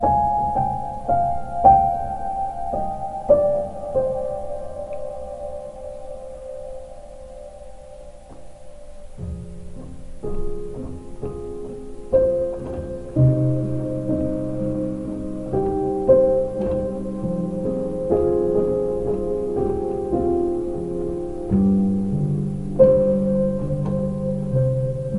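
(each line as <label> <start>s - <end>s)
A slightly distorted and reverberated melodic melancholic piano tune playing indoors. 0.0s - 25.2s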